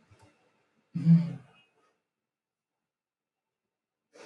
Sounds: Sigh